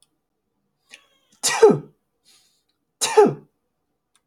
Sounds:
Sneeze